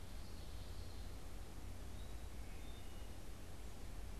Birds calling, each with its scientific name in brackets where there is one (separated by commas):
Common Yellowthroat (Geothlypis trichas), Wood Thrush (Hylocichla mustelina)